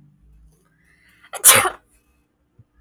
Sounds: Sneeze